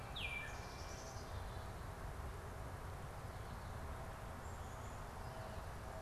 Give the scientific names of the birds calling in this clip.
Icterus galbula, Poecile atricapillus